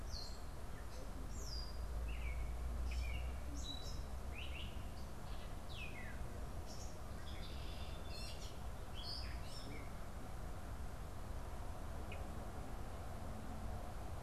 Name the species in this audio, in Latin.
Dumetella carolinensis